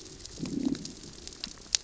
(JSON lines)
{"label": "biophony, growl", "recorder": "SoundTrap 600 or HydroMoth"}